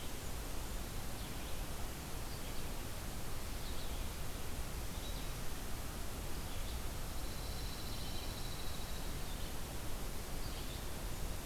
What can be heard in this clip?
Red-eyed Vireo, Pine Warbler